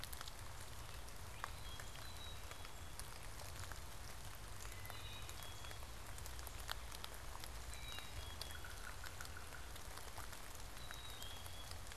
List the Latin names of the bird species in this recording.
Hylocichla mustelina, Poecile atricapillus, Sphyrapicus varius